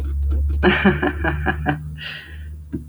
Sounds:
Laughter